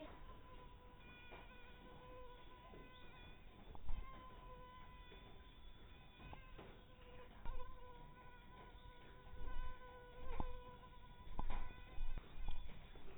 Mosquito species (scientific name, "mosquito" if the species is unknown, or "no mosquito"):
mosquito